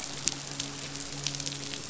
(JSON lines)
{"label": "biophony, midshipman", "recorder": "SoundTrap 500"}